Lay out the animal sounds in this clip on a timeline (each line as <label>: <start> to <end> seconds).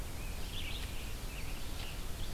Red-eyed Vireo (Vireo olivaceus): 0.0 to 2.3 seconds
Ovenbird (Seiurus aurocapilla): 0.5 to 2.3 seconds